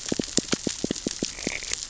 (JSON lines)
{"label": "biophony, knock", "recorder": "SoundTrap 600 or HydroMoth"}